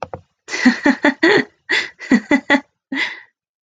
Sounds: Laughter